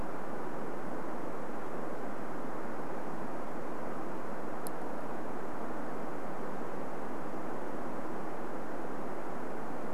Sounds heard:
forest ambience